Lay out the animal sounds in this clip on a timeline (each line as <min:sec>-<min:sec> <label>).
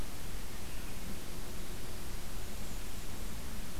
0:01.9-0:03.3 Blackburnian Warbler (Setophaga fusca)